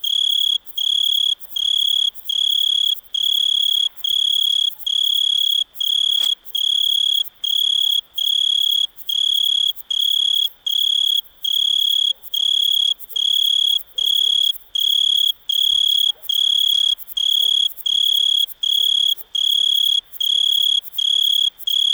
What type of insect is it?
orthopteran